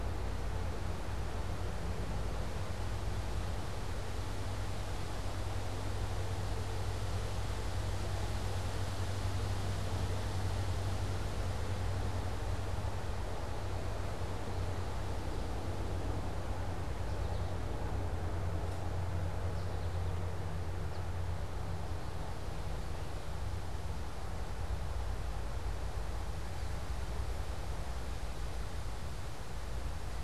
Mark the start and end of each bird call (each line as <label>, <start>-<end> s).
American Goldfinch (Spinus tristis), 16.9-21.7 s